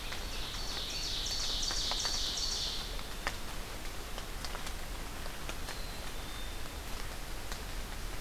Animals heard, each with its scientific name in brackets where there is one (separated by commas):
Black-capped Chickadee (Poecile atricapillus), Ovenbird (Seiurus aurocapilla)